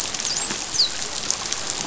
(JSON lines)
{"label": "biophony, dolphin", "recorder": "SoundTrap 500"}